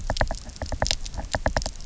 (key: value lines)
label: biophony, knock
recorder: SoundTrap 300